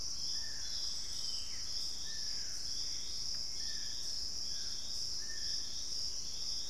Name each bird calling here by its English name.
Dusky-throated Antshrike, Ringed Antpipit, Gray Antbird